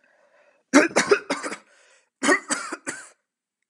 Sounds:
Cough